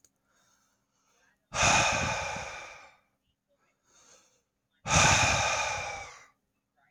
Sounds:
Sigh